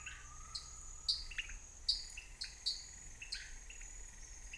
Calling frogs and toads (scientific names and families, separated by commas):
Leptodactylus podicipinus (Leptodactylidae), Dendropsophus nanus (Hylidae)